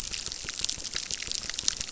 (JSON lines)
{"label": "biophony, crackle", "recorder": "SoundTrap 600"}